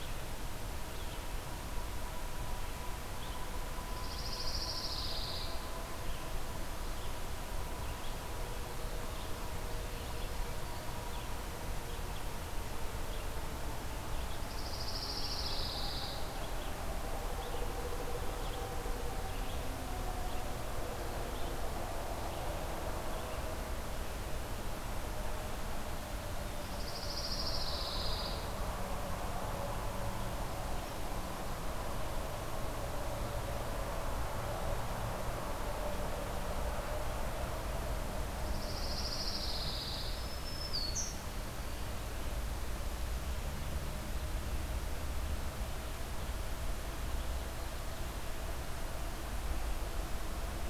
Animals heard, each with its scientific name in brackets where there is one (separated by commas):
Pine Warbler (Setophaga pinus), Black-throated Green Warbler (Setophaga virens), Red-eyed Vireo (Vireo olivaceus)